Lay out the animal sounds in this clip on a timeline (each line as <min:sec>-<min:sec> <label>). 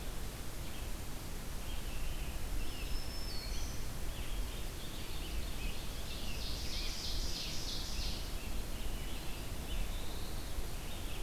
0:00.0-0:03.0 Red-eyed Vireo (Vireo olivaceus)
0:02.5-0:04.0 Black-throated Green Warbler (Setophaga virens)
0:04.1-0:08.5 Ovenbird (Seiurus aurocapilla)
0:04.9-0:11.2 Red-eyed Vireo (Vireo olivaceus)
0:05.0-0:09.9 Scarlet Tanager (Piranga olivacea)
0:09.3-0:10.6 Black-throated Blue Warbler (Setophaga caerulescens)